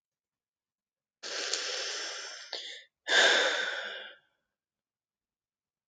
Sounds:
Sigh